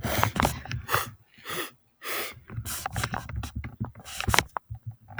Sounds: Sniff